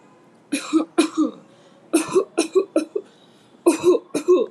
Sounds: Cough